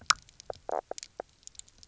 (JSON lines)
{"label": "biophony, knock croak", "recorder": "SoundTrap 300"}